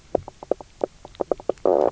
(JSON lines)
{"label": "biophony, knock croak", "recorder": "SoundTrap 300"}